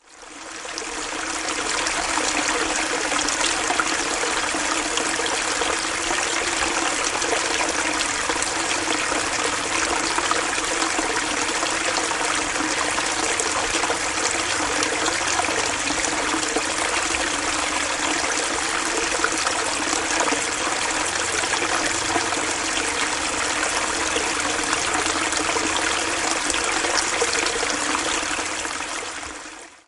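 A river flows loudly nearby. 0:00.0 - 0:29.9

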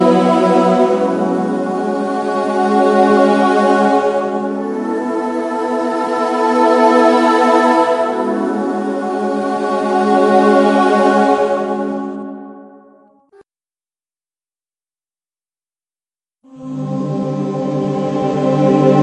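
A choir performs a short, clear, and expressive vocal phrase. 0:00.0 - 0:04.4
Continuous choral vocals with a smooth layered sound. 0:00.0 - 0:12.8
Continuous choir vocals with smooth harmony and high-pitched notes. 0:00.0 - 0:19.0
A choir performs a short, clear, and expressive vocal phrase. 0:05.4 - 0:08.1
A choir performs a short, clear, and expressive vocal phrase. 0:09.0 - 0:12.4
Single high-pitched note resembling a quick press on a piano or synth key. 0:13.3 - 0:13.5
A choir performs a short, clear, and expressive vocal phrase. 0:16.6 - 0:19.0

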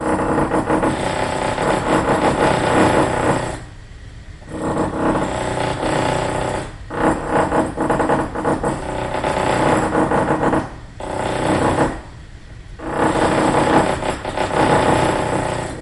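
Echos produced by a material being drilled. 0:12.7 - 0:14.3

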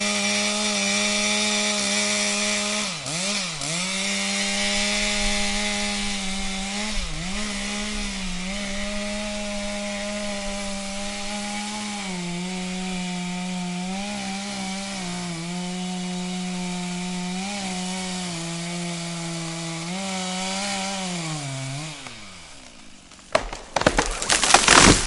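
A chainsaw is cutting a tree. 0:00.0 - 0:22.8
The cracking sound of a tree falling to the ground. 0:23.1 - 0:25.1

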